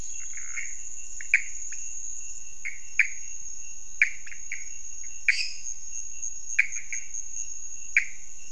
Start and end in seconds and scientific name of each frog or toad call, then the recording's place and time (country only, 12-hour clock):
0.0	8.5	Pithecopus azureus
1.1	1.3	Leptodactylus podicipinus
1.7	1.9	Leptodactylus podicipinus
5.1	5.9	Dendropsophus minutus
Brazil, 1:30am